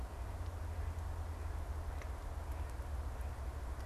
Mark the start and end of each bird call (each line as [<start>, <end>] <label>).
[0.00, 3.85] Mallard (Anas platyrhynchos)